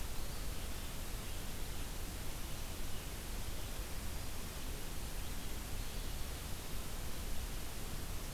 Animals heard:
forest ambience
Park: Marsh-Billings-Rockefeller National Historical Park